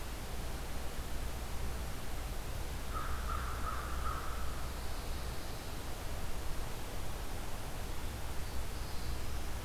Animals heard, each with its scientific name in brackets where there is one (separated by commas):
Pine Warbler (Setophaga pinus), Black-throated Blue Warbler (Setophaga caerulescens), American Crow (Corvus brachyrhynchos)